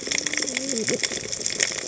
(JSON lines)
{"label": "biophony, cascading saw", "recorder": "HydroMoth"}